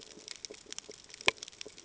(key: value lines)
label: ambient
recorder: HydroMoth